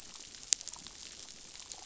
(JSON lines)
{"label": "biophony", "recorder": "SoundTrap 500"}